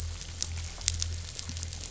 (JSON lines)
{"label": "anthrophony, boat engine", "recorder": "SoundTrap 500"}